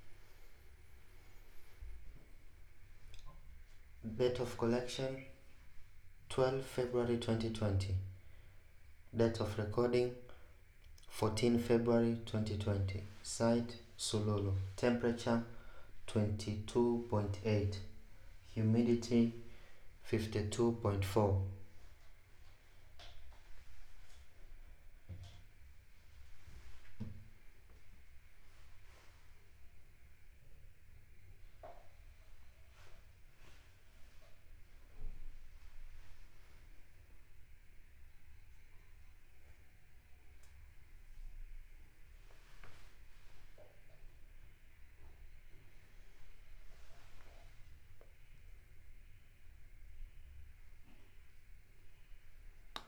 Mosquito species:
no mosquito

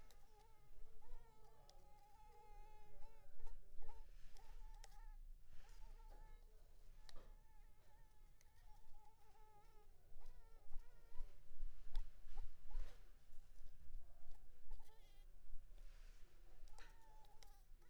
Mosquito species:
Anopheles maculipalpis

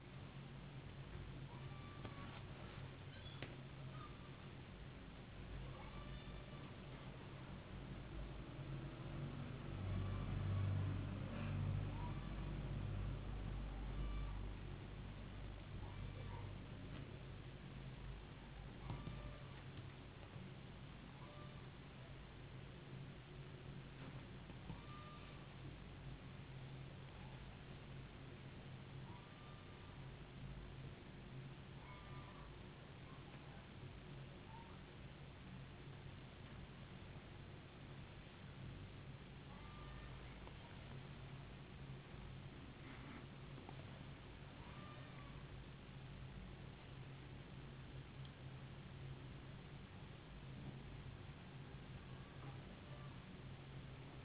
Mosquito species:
no mosquito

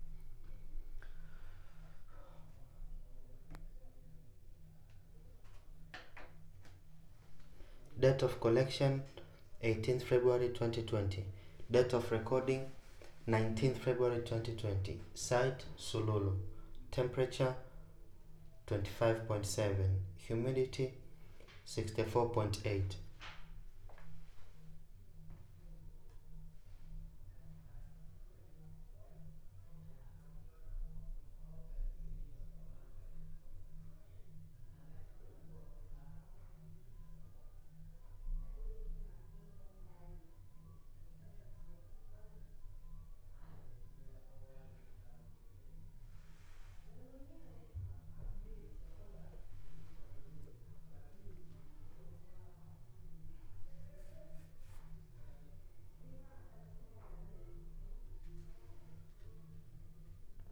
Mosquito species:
no mosquito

